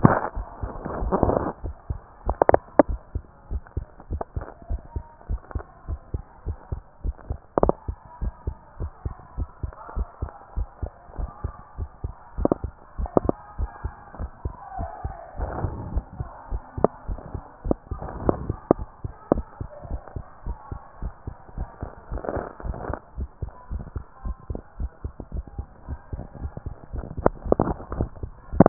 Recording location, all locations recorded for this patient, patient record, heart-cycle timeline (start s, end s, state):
tricuspid valve (TV)
aortic valve (AV)+pulmonary valve (PV)+tricuspid valve (TV)+mitral valve (MV)
#Age: Child
#Sex: Female
#Height: 165.0 cm
#Weight: 46.6 kg
#Pregnancy status: False
#Murmur: Absent
#Murmur locations: nan
#Most audible location: nan
#Systolic murmur timing: nan
#Systolic murmur shape: nan
#Systolic murmur grading: nan
#Systolic murmur pitch: nan
#Systolic murmur quality: nan
#Diastolic murmur timing: nan
#Diastolic murmur shape: nan
#Diastolic murmur grading: nan
#Diastolic murmur pitch: nan
#Diastolic murmur quality: nan
#Outcome: Normal
#Campaign: 2014 screening campaign
0.00	3.12	unannotated
3.12	3.26	S2
3.26	3.48	diastole
3.48	3.62	S1
3.62	3.74	systole
3.74	3.88	S2
3.88	4.08	diastole
4.08	4.22	S1
4.22	4.34	systole
4.34	4.48	S2
4.48	4.68	diastole
4.68	4.80	S1
4.80	4.94	systole
4.94	5.04	S2
5.04	5.26	diastole
5.26	5.40	S1
5.40	5.52	systole
5.52	5.62	S2
5.62	5.86	diastole
5.86	6.00	S1
6.00	6.12	systole
6.12	6.26	S2
6.26	6.46	diastole
6.46	6.58	S1
6.58	6.70	systole
6.70	6.84	S2
6.84	7.02	diastole
7.02	7.16	S1
7.16	7.28	systole
7.28	7.38	S2
7.38	7.62	diastole
7.62	7.78	S1
7.78	7.86	systole
7.86	7.96	S2
7.96	8.20	diastole
8.20	8.34	S1
8.34	8.44	systole
8.44	8.54	S2
8.54	8.78	diastole
8.78	8.90	S1
8.90	9.02	systole
9.02	9.12	S2
9.12	9.36	diastole
9.36	9.48	S1
9.48	9.60	systole
9.60	9.70	S2
9.70	9.90	diastole
9.90	10.06	S1
10.06	10.20	systole
10.20	10.30	S2
10.30	10.54	diastole
10.54	10.68	S1
10.68	10.80	systole
10.80	10.90	S2
10.90	11.16	diastole
11.16	11.30	S1
11.30	11.42	systole
11.42	11.56	S2
11.56	11.76	diastole
11.76	11.90	S1
11.90	12.02	systole
12.02	12.16	S2
12.16	12.36	diastole
12.36	12.52	S1
12.52	12.62	systole
12.62	12.72	S2
12.72	12.96	diastole
12.96	13.10	S1
13.10	13.24	systole
13.24	13.36	S2
13.36	13.56	diastole
13.56	13.70	S1
13.70	13.82	systole
13.82	13.92	S2
13.92	14.18	diastole
14.18	14.32	S1
14.32	14.44	systole
14.44	14.54	S2
14.54	14.78	diastole
14.78	14.90	S1
14.90	15.04	systole
15.04	15.14	S2
15.14	15.36	diastole
15.36	15.54	S1
15.54	15.62	systole
15.62	15.72	S2
15.72	15.90	diastole
15.90	16.04	S1
16.04	16.18	systole
16.18	16.28	S2
16.28	16.50	diastole
16.50	16.62	S1
16.62	16.76	systole
16.76	16.90	S2
16.90	17.10	diastole
17.10	17.20	S1
17.20	17.32	systole
17.32	17.42	S2
17.42	17.64	diastole
17.64	17.78	S1
17.78	17.90	systole
17.90	18.00	S2
18.00	18.20	diastole
18.20	18.38	S1
18.38	18.48	systole
18.48	18.58	S2
18.58	18.78	diastole
18.78	18.90	S1
18.90	19.04	systole
19.04	19.14	S2
19.14	19.32	diastole
19.32	19.46	S1
19.46	19.60	systole
19.60	19.70	S2
19.70	19.92	diastole
19.92	20.02	S1
20.02	20.14	systole
20.14	20.24	S2
20.24	20.44	diastole
20.44	20.58	S1
20.58	20.70	systole
20.70	20.80	S2
20.80	21.00	diastole
21.00	21.14	S1
21.14	21.26	systole
21.26	21.36	S2
21.36	21.56	diastole
21.56	21.70	S1
21.70	21.78	systole
21.78	21.88	S2
21.88	22.10	diastole
22.10	22.24	S1
22.24	22.34	systole
22.34	22.46	S2
22.46	22.64	diastole
22.64	22.78	S1
22.78	22.88	systole
22.88	22.98	S2
22.98	23.16	diastole
23.16	23.30	S1
23.30	23.38	systole
23.38	23.50	S2
23.50	23.70	diastole
23.70	23.84	S1
23.84	23.92	systole
23.92	24.02	S2
24.02	24.24	diastole
24.24	24.38	S1
24.38	24.50	systole
24.50	24.60	S2
24.60	24.78	diastole
24.78	24.92	S1
24.92	25.04	systole
25.04	25.14	S2
25.14	25.34	diastole
25.34	25.46	S1
25.46	25.58	systole
25.58	25.68	S2
25.68	25.88	diastole
25.88	26.00	S1
26.00	26.12	systole
26.12	26.22	S2
26.22	26.40	diastole
26.40	26.52	S1
26.52	26.66	systole
26.66	26.76	S2
26.76	26.94	diastole
26.94	27.08	S1
27.08	28.69	unannotated